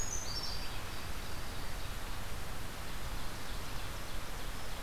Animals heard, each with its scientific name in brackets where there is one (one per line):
Red-eyed Vireo (Vireo olivaceus)
Brown Creeper (Certhia americana)
Louisiana Waterthrush (Parkesia motacilla)
Ovenbird (Seiurus aurocapilla)